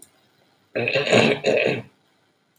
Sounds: Throat clearing